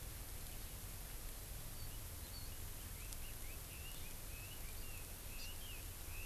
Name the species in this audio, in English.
Red-billed Leiothrix, Hawaii Amakihi